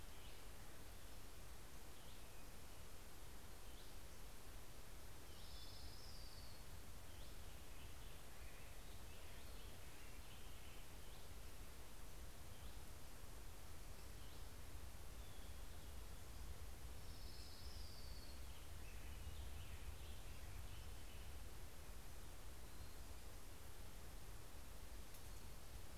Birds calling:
Orange-crowned Warbler (Leiothlypis celata), Black-headed Grosbeak (Pheucticus melanocephalus)

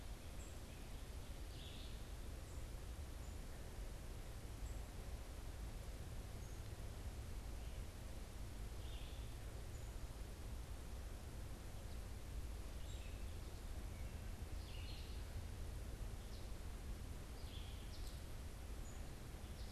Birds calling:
American Goldfinch (Spinus tristis), unidentified bird, Red-eyed Vireo (Vireo olivaceus)

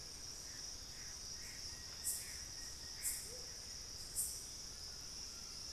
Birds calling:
Gray Antbird (Cercomacra cinerascens), Plain-winged Antshrike (Thamnophilus schistaceus), Amazonian Motmot (Momotus momota), Collared Trogon (Trogon collaris)

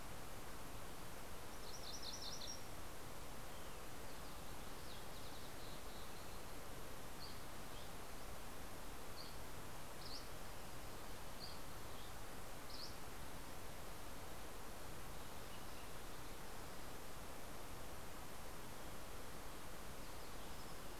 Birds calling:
Fox Sparrow (Passerella iliaca), MacGillivray's Warbler (Geothlypis tolmiei), Dusky Flycatcher (Empidonax oberholseri)

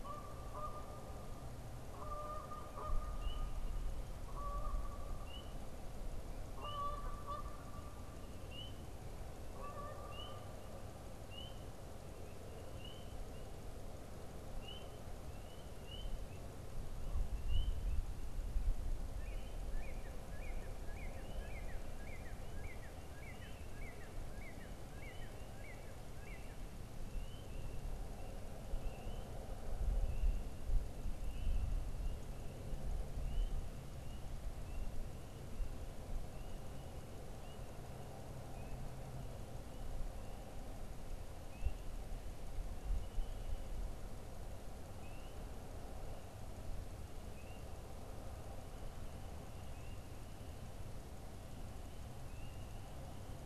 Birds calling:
Canada Goose (Branta canadensis), Northern Cardinal (Cardinalis cardinalis)

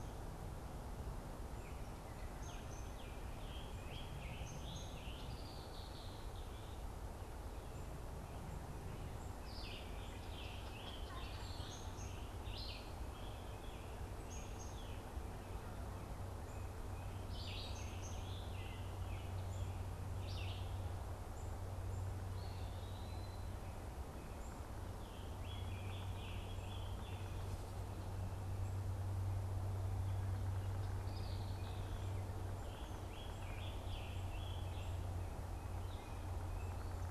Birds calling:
Red-winged Blackbird (Agelaius phoeniceus), Scarlet Tanager (Piranga olivacea), Black-capped Chickadee (Poecile atricapillus), Eastern Wood-Pewee (Contopus virens), Baltimore Oriole (Icterus galbula), Red-eyed Vireo (Vireo olivaceus)

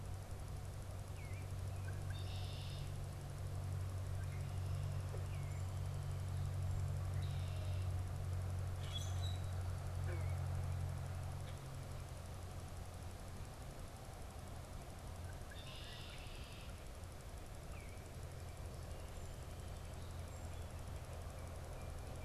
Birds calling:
Eastern Bluebird (Sialia sialis), Common Grackle (Quiscalus quiscula), Red-winged Blackbird (Agelaius phoeniceus)

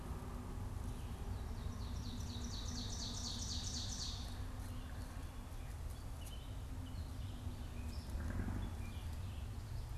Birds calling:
Ovenbird (Seiurus aurocapilla), Gray Catbird (Dumetella carolinensis)

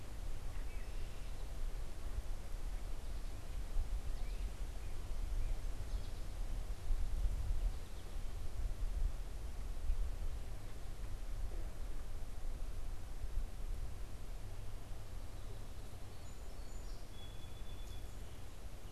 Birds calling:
American Goldfinch (Spinus tristis), Red-winged Blackbird (Agelaius phoeniceus), Song Sparrow (Melospiza melodia)

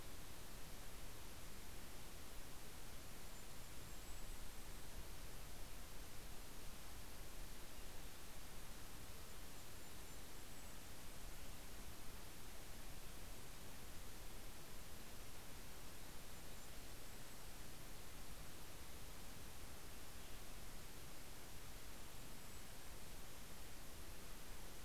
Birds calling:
Golden-crowned Kinglet (Regulus satrapa), Western Tanager (Piranga ludoviciana)

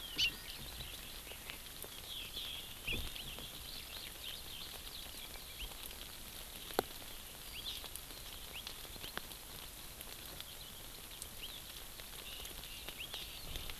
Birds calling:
Eurasian Skylark (Alauda arvensis), Hawaii Amakihi (Chlorodrepanis virens)

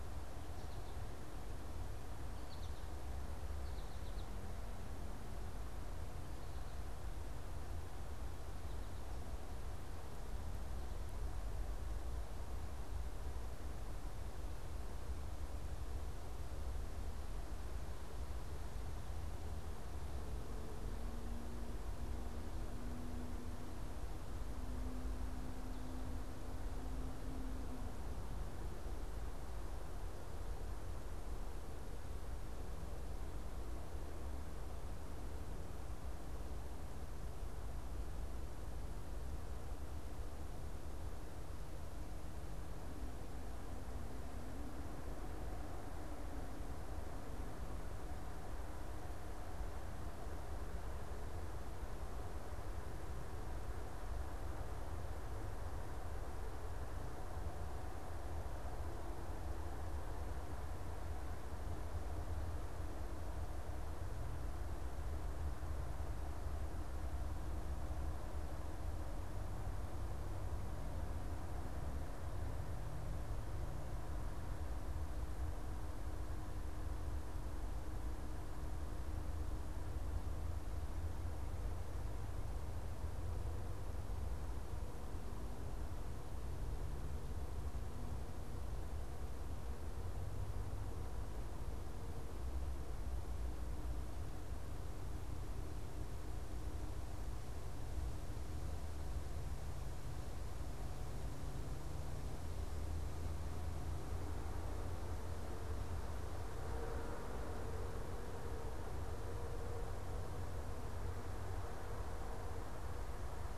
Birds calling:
American Goldfinch (Spinus tristis)

